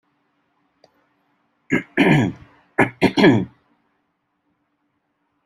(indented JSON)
{
  "expert_labels": [
    {
      "quality": "no cough present",
      "dyspnea": false,
      "wheezing": false,
      "stridor": false,
      "choking": false,
      "congestion": false,
      "nothing": false
    }
  ]
}